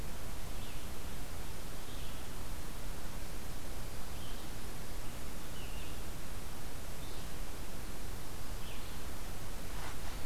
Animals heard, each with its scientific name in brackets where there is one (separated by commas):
Red-eyed Vireo (Vireo olivaceus)